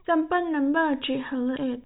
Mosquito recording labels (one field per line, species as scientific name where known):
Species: no mosquito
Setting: cup